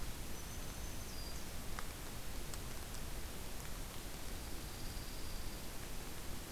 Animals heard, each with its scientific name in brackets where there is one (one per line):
Dark-eyed Junco (Junco hyemalis)
Black-throated Green Warbler (Setophaga virens)